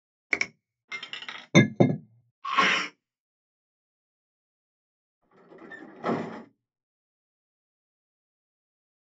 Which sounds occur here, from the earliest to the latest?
finger snapping, coin, clink, sneeze, bus